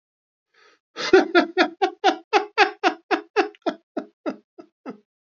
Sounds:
Laughter